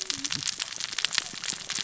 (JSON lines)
{"label": "biophony, cascading saw", "recorder": "SoundTrap 600 or HydroMoth"}